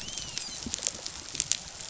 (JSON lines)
{"label": "biophony, dolphin", "recorder": "SoundTrap 500"}